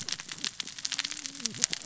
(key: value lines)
label: biophony, cascading saw
recorder: SoundTrap 600 or HydroMoth